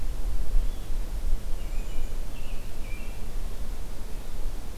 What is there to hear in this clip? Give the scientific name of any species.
Turdus migratorius, Catharus guttatus